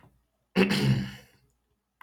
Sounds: Throat clearing